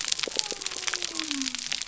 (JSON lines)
{"label": "biophony", "recorder": "SoundTrap 300"}